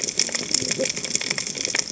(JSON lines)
{"label": "biophony, cascading saw", "recorder": "HydroMoth"}